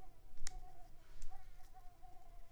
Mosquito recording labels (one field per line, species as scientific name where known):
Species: Mansonia uniformis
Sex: female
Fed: unfed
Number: one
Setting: cup